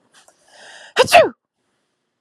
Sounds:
Sneeze